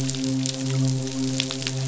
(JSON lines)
{"label": "biophony, midshipman", "recorder": "SoundTrap 500"}